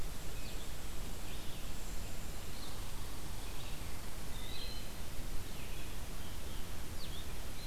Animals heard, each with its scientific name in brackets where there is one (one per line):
Red-eyed Vireo (Vireo olivaceus)
Eastern Wood-Pewee (Contopus virens)